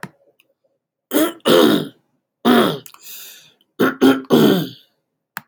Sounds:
Throat clearing